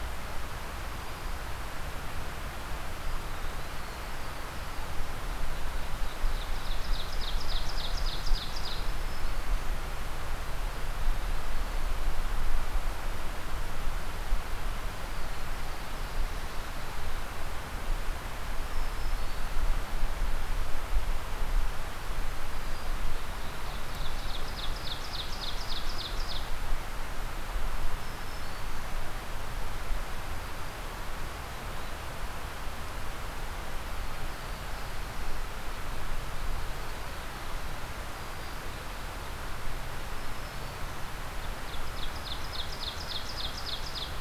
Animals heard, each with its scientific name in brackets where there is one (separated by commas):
Ovenbird (Seiurus aurocapilla), Black-throated Green Warbler (Setophaga virens), Black-throated Blue Warbler (Setophaga caerulescens)